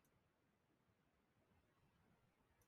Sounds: Sigh